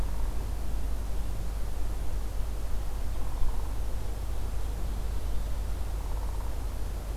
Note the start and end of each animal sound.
5.9s-6.5s: Downy Woodpecker (Dryobates pubescens)

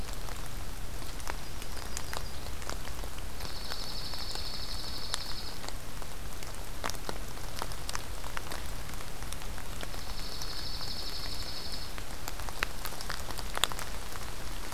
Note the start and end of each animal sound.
1.3s-2.5s: Yellow-rumped Warbler (Setophaga coronata)
3.4s-5.6s: Dark-eyed Junco (Junco hyemalis)
9.9s-11.9s: Dark-eyed Junco (Junco hyemalis)

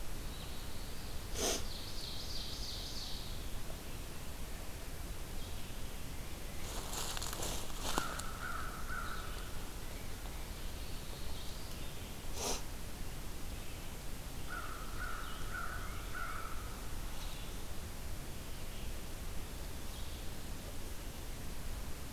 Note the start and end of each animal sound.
0.0s-1.1s: Black-throated Blue Warbler (Setophaga caerulescens)
1.5s-3.3s: Ovenbird (Seiurus aurocapilla)
7.7s-9.8s: American Crow (Corvus brachyrhynchos)
10.5s-11.8s: Black-throated Blue Warbler (Setophaga caerulescens)
14.2s-16.7s: American Crow (Corvus brachyrhynchos)

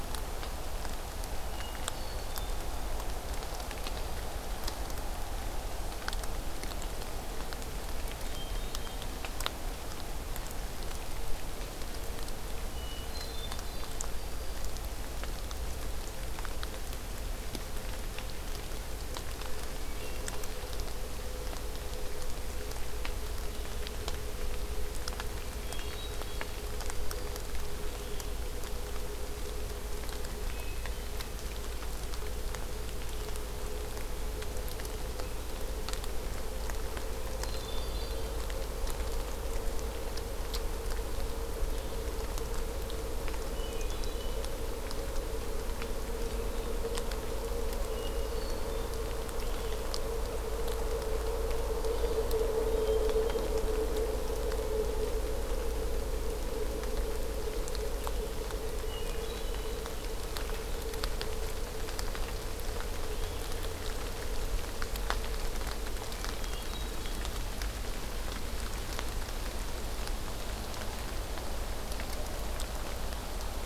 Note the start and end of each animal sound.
1.4s-2.7s: Hermit Thrush (Catharus guttatus)
8.0s-9.3s: Hermit Thrush (Catharus guttatus)
12.6s-14.1s: Hermit Thrush (Catharus guttatus)
13.9s-14.8s: Black-throated Green Warbler (Setophaga virens)
19.8s-20.5s: Hermit Thrush (Catharus guttatus)
25.5s-26.7s: Hermit Thrush (Catharus guttatus)
26.8s-27.7s: Black-throated Green Warbler (Setophaga virens)
30.3s-31.2s: Hermit Thrush (Catharus guttatus)
37.2s-38.5s: Hermit Thrush (Catharus guttatus)
43.4s-44.4s: Hermit Thrush (Catharus guttatus)
47.7s-48.9s: Hermit Thrush (Catharus guttatus)
52.7s-53.7s: Hermit Thrush (Catharus guttatus)
58.7s-59.9s: Hermit Thrush (Catharus guttatus)
66.3s-67.3s: Hermit Thrush (Catharus guttatus)

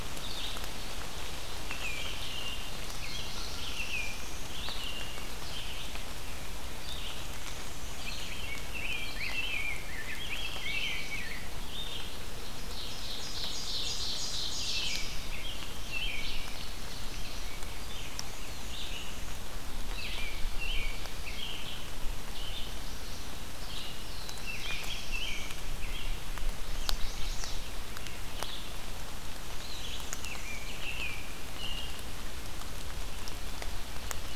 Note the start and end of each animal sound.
0.1s-34.4s: Red-eyed Vireo (Vireo olivaceus)
1.5s-4.3s: American Robin (Turdus migratorius)
3.0s-4.6s: Black-throated Blue Warbler (Setophaga caerulescens)
6.9s-8.5s: Black-and-white Warbler (Mniotilta varia)
7.8s-11.5s: Rose-breasted Grosbeak (Pheucticus ludovicianus)
8.7s-11.0s: American Robin (Turdus migratorius)
12.2s-15.0s: Ovenbird (Seiurus aurocapilla)
14.5s-16.4s: American Robin (Turdus migratorius)
15.4s-17.5s: Ovenbird (Seiurus aurocapilla)
17.8s-19.5s: Black-and-white Warbler (Mniotilta varia)
19.9s-21.9s: American Robin (Turdus migratorius)
23.8s-25.6s: Black-throated Blue Warbler (Setophaga caerulescens)
24.4s-26.2s: American Robin (Turdus migratorius)
26.5s-27.8s: Chestnut-sided Warbler (Setophaga pensylvanica)
29.3s-31.1s: Black-and-white Warbler (Mniotilta varia)
30.1s-32.0s: American Robin (Turdus migratorius)
33.8s-34.4s: Ovenbird (Seiurus aurocapilla)

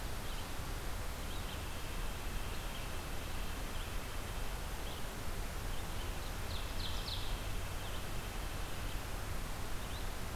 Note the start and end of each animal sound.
0.0s-10.1s: Red-eyed Vireo (Vireo olivaceus)
1.3s-4.7s: White-breasted Nuthatch (Sitta carolinensis)
5.3s-7.5s: Ovenbird (Seiurus aurocapilla)
6.5s-8.7s: White-breasted Nuthatch (Sitta carolinensis)

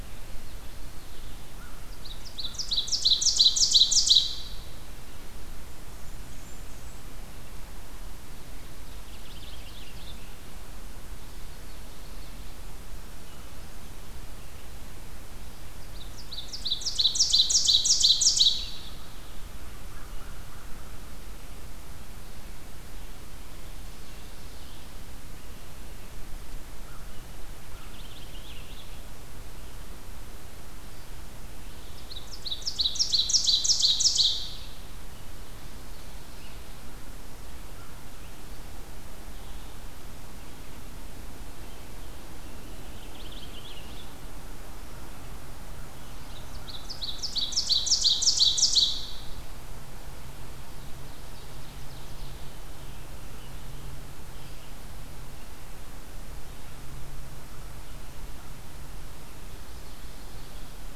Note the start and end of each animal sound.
0.0s-1.5s: Common Yellowthroat (Geothlypis trichas)
1.5s-2.9s: American Crow (Corvus brachyrhynchos)
1.6s-4.7s: Ovenbird (Seiurus aurocapilla)
5.4s-7.1s: Blackburnian Warbler (Setophaga fusca)
8.6s-10.3s: Purple Finch (Haemorhous purpureus)
11.1s-12.5s: Common Yellowthroat (Geothlypis trichas)
15.7s-19.0s: Ovenbird (Seiurus aurocapilla)
18.8s-21.1s: American Crow (Corvus brachyrhynchos)
23.6s-25.1s: Common Yellowthroat (Geothlypis trichas)
26.7s-28.2s: American Crow (Corvus brachyrhynchos)
27.4s-29.2s: Purple Finch (Haemorhous purpureus)
31.5s-34.8s: Ovenbird (Seiurus aurocapilla)
35.1s-36.5s: Common Yellowthroat (Geothlypis trichas)
37.7s-38.0s: American Crow (Corvus brachyrhynchos)
42.7s-44.1s: Purple Finch (Haemorhous purpureus)
45.9s-49.4s: Ovenbird (Seiurus aurocapilla)
50.6s-52.6s: Ovenbird (Seiurus aurocapilla)
59.3s-60.7s: Common Yellowthroat (Geothlypis trichas)

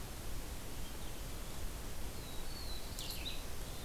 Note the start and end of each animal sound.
2.0s-3.4s: Black-throated Blue Warbler (Setophaga caerulescens)

